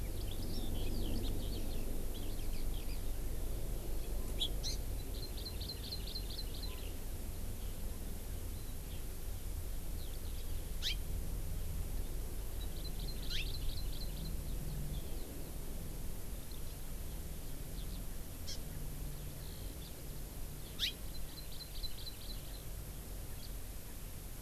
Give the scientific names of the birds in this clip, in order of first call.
Alauda arvensis, Chlorodrepanis virens, Haemorhous mexicanus